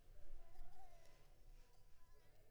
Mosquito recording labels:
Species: Anopheles coustani; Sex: female; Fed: blood-fed; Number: one; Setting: cup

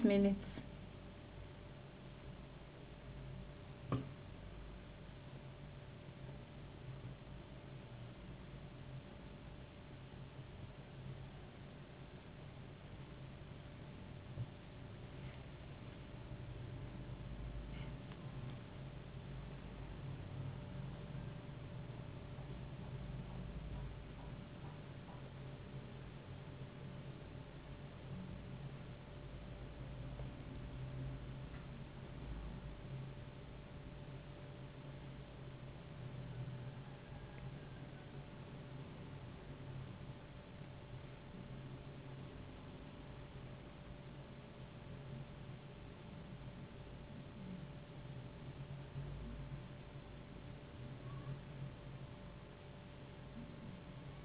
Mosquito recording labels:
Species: no mosquito; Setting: insect culture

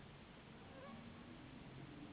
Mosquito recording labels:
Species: Anopheles gambiae s.s.; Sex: female; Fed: unfed; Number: one; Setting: insect culture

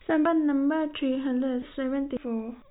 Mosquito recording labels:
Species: no mosquito; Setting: cup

